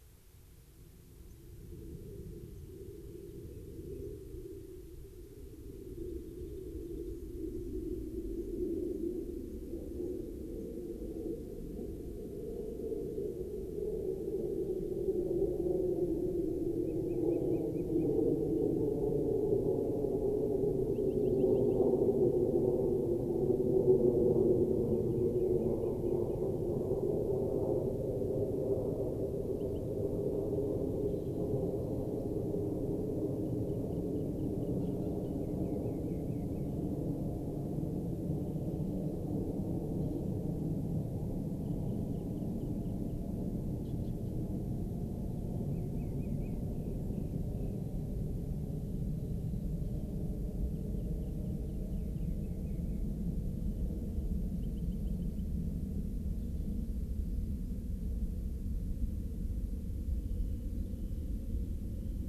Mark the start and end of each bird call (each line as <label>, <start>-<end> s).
White-crowned Sparrow (Zonotrichia leucophrys), 1.2-1.3 s
White-crowned Sparrow (Zonotrichia leucophrys), 2.5-2.6 s
Rock Wren (Salpinctes obsoletus), 2.8-4.0 s
unidentified bird, 5.9-7.1 s
White-crowned Sparrow (Zonotrichia leucophrys), 8.3-8.5 s
White-crowned Sparrow (Zonotrichia leucophrys), 8.9-9.0 s
White-crowned Sparrow (Zonotrichia leucophrys), 9.4-9.6 s
White-crowned Sparrow (Zonotrichia leucophrys), 9.9-10.1 s
White-crowned Sparrow (Zonotrichia leucophrys), 10.5-10.6 s
Rock Wren (Salpinctes obsoletus), 16.8-18.1 s
Rock Wren (Salpinctes obsoletus), 20.8-21.7 s
Rock Wren (Salpinctes obsoletus), 24.8-26.7 s
Rock Wren (Salpinctes obsoletus), 29.5-29.8 s
Rock Wren (Salpinctes obsoletus), 33.4-34.7 s
Rock Wren (Salpinctes obsoletus), 35.3-36.7 s
Rock Wren (Salpinctes obsoletus), 38.4-39.2 s
Rock Wren (Salpinctes obsoletus), 41.5-43.2 s
Rock Wren (Salpinctes obsoletus), 45.6-47.8 s
Rock Wren (Salpinctes obsoletus), 50.7-53.0 s
Rock Wren (Salpinctes obsoletus), 53.5-54.2 s
Rock Wren (Salpinctes obsoletus), 54.5-55.4 s
Rock Wren (Salpinctes obsoletus), 60.1-61.3 s